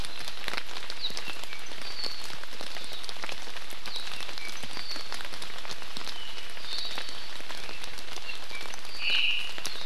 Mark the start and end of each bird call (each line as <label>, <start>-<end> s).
Apapane (Himatione sanguinea), 1.1-2.3 s
Apapane (Himatione sanguinea), 3.8-5.1 s
Apapane (Himatione sanguinea), 6.1-7.3 s
Omao (Myadestes obscurus), 9.0-9.6 s